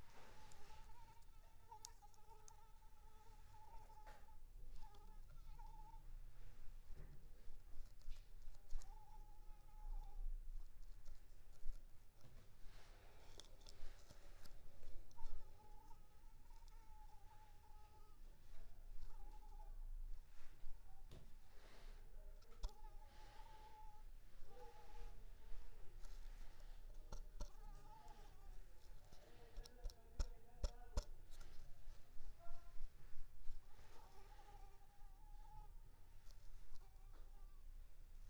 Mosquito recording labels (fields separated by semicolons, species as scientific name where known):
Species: Anopheles arabiensis; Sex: female; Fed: unfed; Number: one; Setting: cup